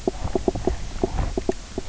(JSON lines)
{"label": "biophony, knock croak", "recorder": "SoundTrap 300"}